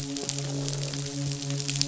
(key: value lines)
label: biophony, croak
recorder: SoundTrap 500

label: biophony, midshipman
recorder: SoundTrap 500